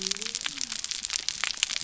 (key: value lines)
label: biophony
recorder: SoundTrap 300